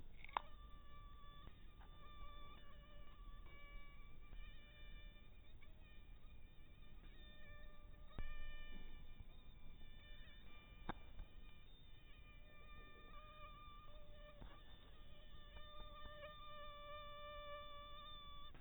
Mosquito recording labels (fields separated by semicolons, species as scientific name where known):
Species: mosquito; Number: one; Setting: cup